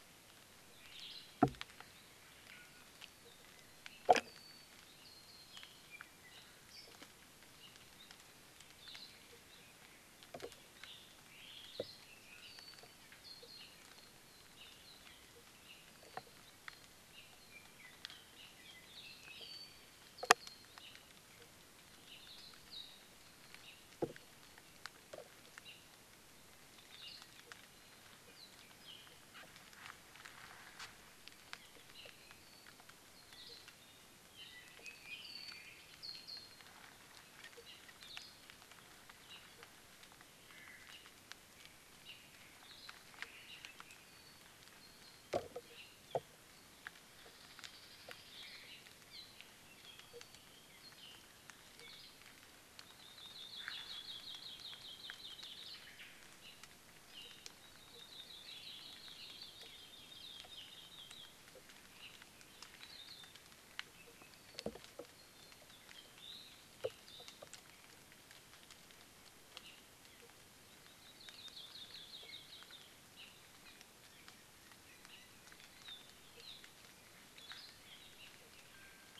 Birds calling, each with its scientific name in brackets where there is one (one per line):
Omao (Myadestes obscurus)
Hawaii Creeper (Loxops mana)
Apapane (Himatione sanguinea)
Hawaii Akepa (Loxops coccineus)